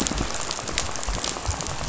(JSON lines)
{"label": "biophony, rattle", "recorder": "SoundTrap 500"}